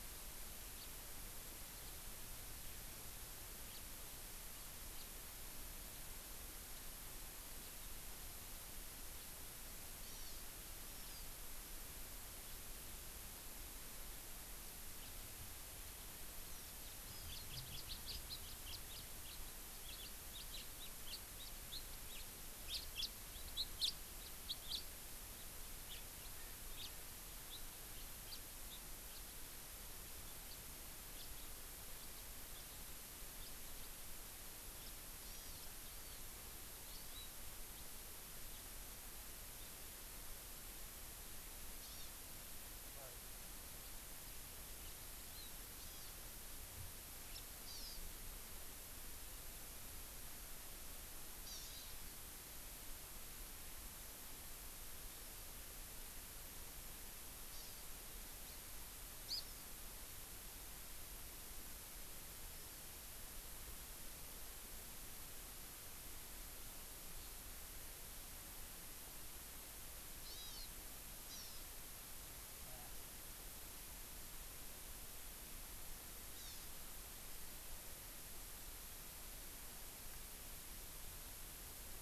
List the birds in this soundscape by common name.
House Finch, Hawaii Amakihi